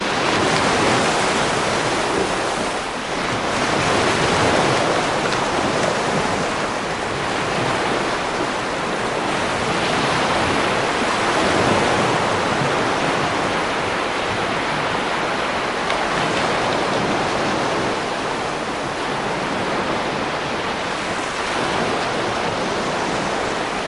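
Waves crashing on a beach repeatedly. 0:00.0 - 0:23.9

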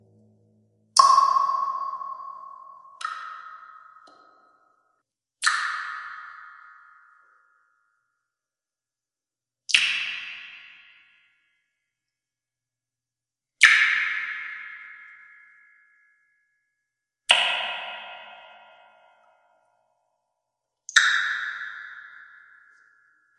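Water droplets dropping with reverberation in an echoing cave. 0:00.9 - 0:03.0
The sound of a water droplet impacting with reverberation. 0:03.0 - 0:05.0
A water droplet reverberates in an echoing cave. 0:05.4 - 0:08.2
Water droplets echoing in a reverberant cave. 0:09.7 - 0:11.5
Water droplets reverberate in an echoing cave. 0:13.6 - 0:23.4

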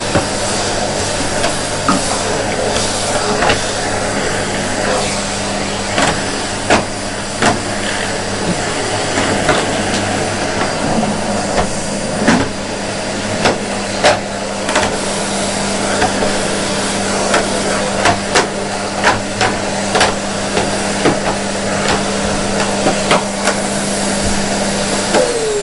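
A vacuum cleaner runs, producing a steady hum and suction noise. 0:00.0 - 0:25.6
Short clinks and pops occur as dirt and small objects are sucked into a vacuum during steady operation. 0:01.3 - 0:03.7
Short clinks and pops occur as dirt and small objects are sucked into a vacuum during steady operation. 0:05.9 - 0:07.8
Short clinks and pops occur as dirt and small objects are sucked into a vacuum during steady operation. 0:09.4 - 0:09.7
Short clinks and pops occur as dirt and small objects are sucked into a vacuum during steady operation. 0:11.5 - 0:12.6
Short clinks and pops occur as dirt and small objects are sucked into a vacuum during steady operation. 0:13.4 - 0:15.0
Short clinks and pops occur as dirt and small objects are sucked into a vacuum during steady operation. 0:16.0 - 0:16.4
Short clinks and pops occur as dirt and small objects are sucked into a vacuum during steady operation. 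0:17.3 - 0:25.3
The vacuum hums and suctions, fading quickly with a smooth drop in pitch before shutting down quietly. 0:25.3 - 0:25.6

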